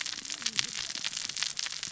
{"label": "biophony, cascading saw", "recorder": "SoundTrap 600 or HydroMoth"}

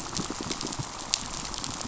{"label": "biophony, pulse", "recorder": "SoundTrap 500"}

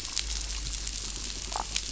{"label": "biophony, damselfish", "recorder": "SoundTrap 500"}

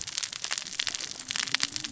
{"label": "biophony, cascading saw", "recorder": "SoundTrap 600 or HydroMoth"}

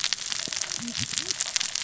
{"label": "biophony, cascading saw", "recorder": "SoundTrap 600 or HydroMoth"}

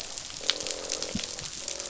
{"label": "biophony, croak", "recorder": "SoundTrap 500"}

